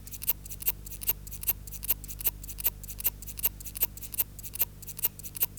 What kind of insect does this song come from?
orthopteran